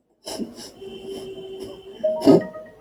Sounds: Sniff